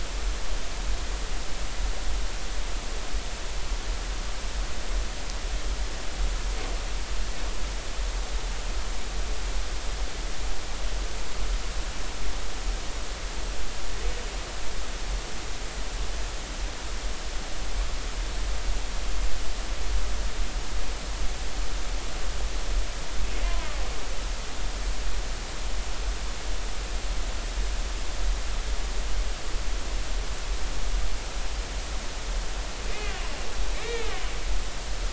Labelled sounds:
23.4	23.7	killer whale, northern resident, 0.93 to 1.1 kHz
33.7	34.1	killer whale, northern resident, 1.7 to 2.4 kHz

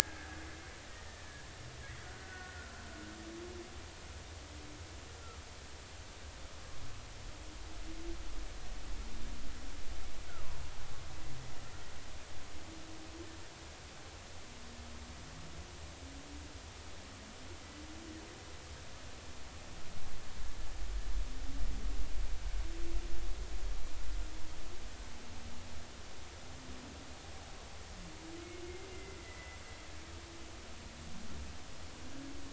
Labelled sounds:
0.9	2.8	killer whale, Bigg's (transient), 1.3 to 1.9 kHz
28.9	29.6	killer whale, Bigg's (transient), 2.0 to 2.1 kHz

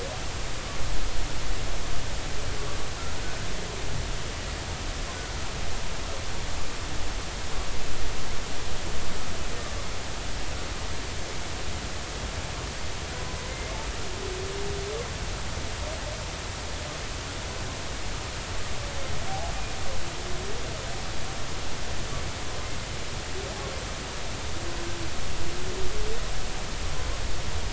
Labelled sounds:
13.5	13.8	humpback whale, 2.0 to 2.2 kHz

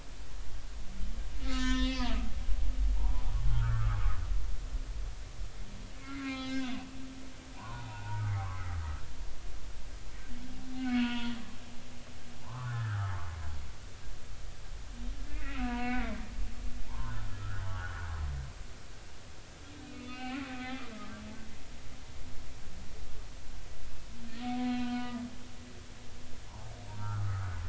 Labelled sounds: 1.4	2.1	humpback whale, 0.96 to 7.0 kHz
3.0	4.0	humpback whale, 0.80 to 1.6 kHz
6.0	6.9	humpback whale, 0.80 to 5.1 kHz
7.5	8.8	humpback whale, 0.80 to 2.1 kHz
11.0	11.3	humpback whale, 0.90 to 3.5 kHz
12.4	13.1	humpback whale, 0.83 to 1.8 kHz
15.2	16.1	humpback whale, 0.90 to 2.8 kHz
16.9	18.0	humpback whale, 0.80 to 1.9 kHz
19.9	20.9	humpback whale, 0.80 to 3.5 kHz
24.6	26.0	humpback whale, 0.83 to 4.1 kHz
26.5	27.6	humpback whale, 0.80 to 1.6 kHz

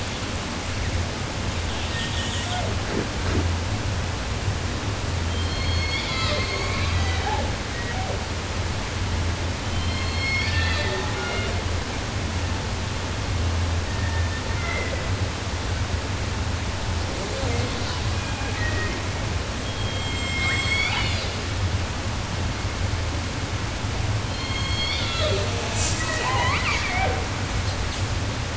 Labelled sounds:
1.6	2.8	killer whale, southern resident, J pod, call S01, 0.10 to 8.0 kHz
5.2	8.3	killer whale, southern resident, J pod, call S01, 0.10 to 8.0 kHz
9.6	11.7	killer whale, southern resident, J pod, call S01, 0.10 to 7.9 kHz
13.7	15.2	killer whale, 0.16 to 2.8 kHz
17.1	19.3	killer whale, southern resident, J pod, call S01, 0.10 to 5.0 kHz
19.6	21.4	killer whale, southern resident, J pod, call S01, 0.10 to 8.0 kHz
24.1	28.1	killer whale, 0.09 to 8.0 kHz

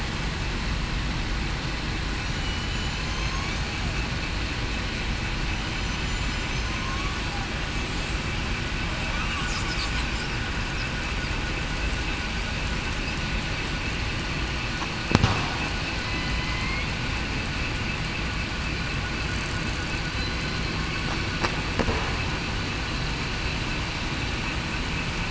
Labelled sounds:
2.2	2.6	killer whale, southern resident, 5.7 to 6.0 kHz
2.9	3.3	killer whale, southern resident, 3.0 to 3.2 kHz
6.0	7.2	killer whale, southern resident, 1.0 to 7.2 kHz
16.4	16.9	killer whale, southern resident, 2.0 to 2.2 kHz

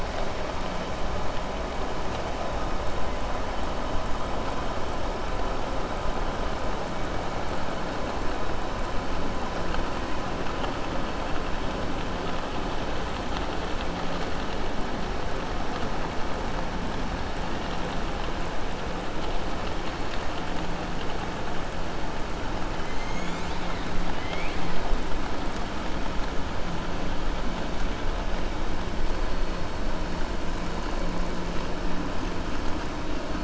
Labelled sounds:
24.1	24.7	killer whale, southern resident, 2.0 to 5.0 kHz

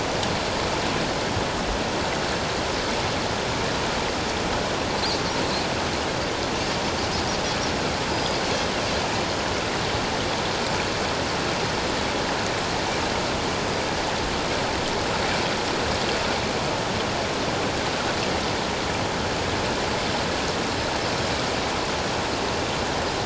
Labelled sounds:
8.1	8.4	Pacific white-sided dolphin, 4.8 to 5.0 kHz

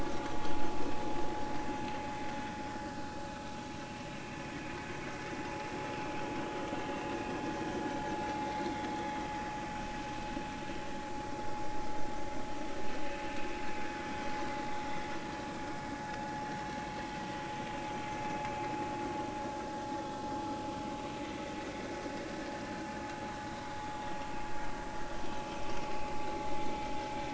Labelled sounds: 8.4	9.0	vessel noise, 2.0 to 3.5 kHz

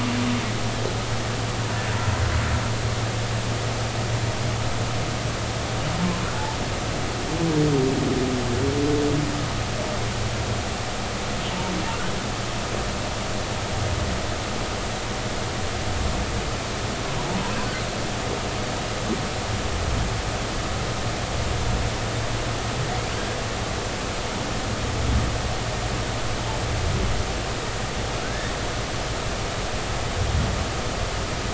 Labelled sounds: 17.2	17.5	humpback whale, 0.80 to 1.0 kHz
28.2	28.5	humpback whale, 1.4 to 1.9 kHz

